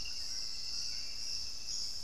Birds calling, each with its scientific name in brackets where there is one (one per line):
Western Striolated-Puffbird (Nystalus obamai)
Hauxwell's Thrush (Turdus hauxwelli)